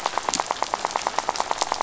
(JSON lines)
{"label": "biophony, rattle", "recorder": "SoundTrap 500"}